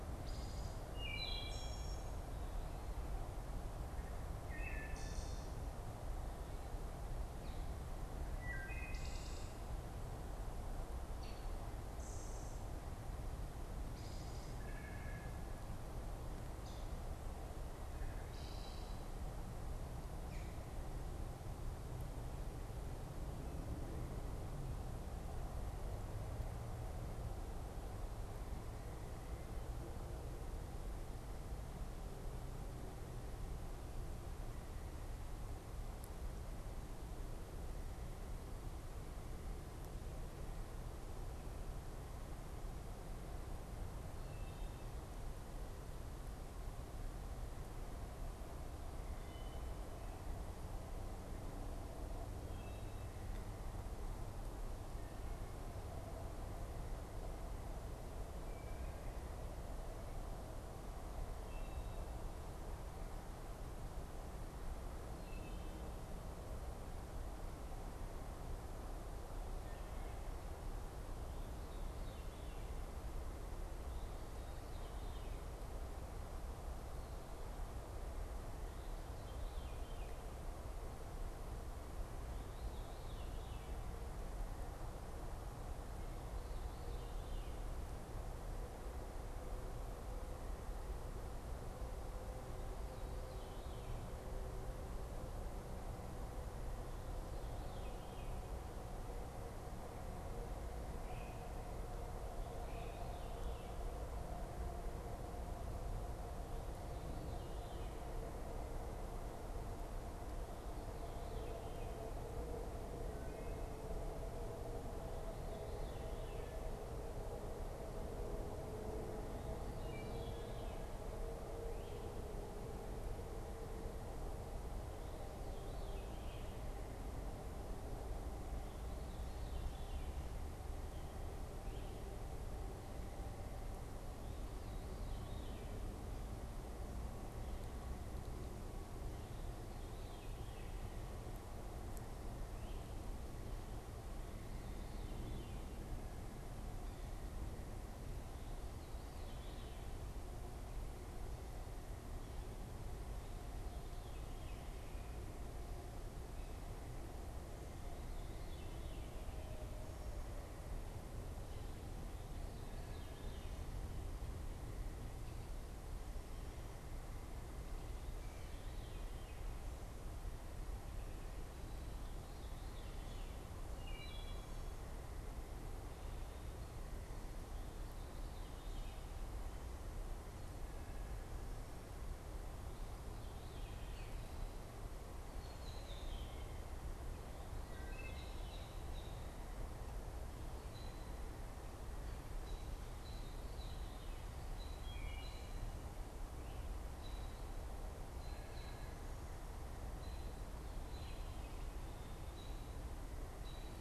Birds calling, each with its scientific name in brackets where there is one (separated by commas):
American Robin (Turdus migratorius), Veery (Catharus fuscescens), Wood Thrush (Hylocichla mustelina)